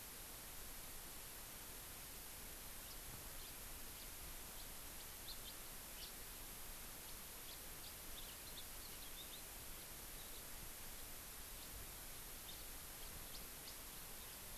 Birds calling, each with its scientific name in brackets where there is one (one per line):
House Finch (Haemorhous mexicanus)